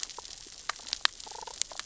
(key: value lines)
label: biophony, damselfish
recorder: SoundTrap 600 or HydroMoth